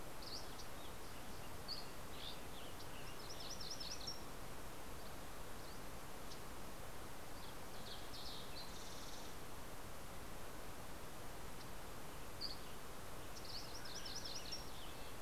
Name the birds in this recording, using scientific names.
Geothlypis tolmiei, Empidonax oberholseri, Setophaga coronata, Passerella iliaca, Piranga ludoviciana, Oreortyx pictus, Sitta canadensis